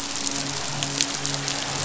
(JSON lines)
{"label": "biophony, midshipman", "recorder": "SoundTrap 500"}